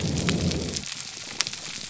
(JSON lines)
{"label": "biophony", "recorder": "SoundTrap 300"}